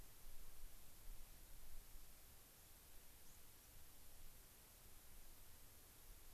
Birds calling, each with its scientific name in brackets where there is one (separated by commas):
unidentified bird